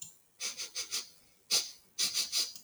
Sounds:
Sniff